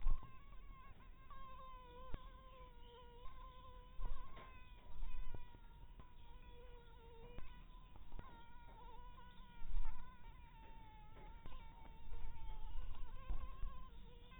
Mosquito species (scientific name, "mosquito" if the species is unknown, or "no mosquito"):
mosquito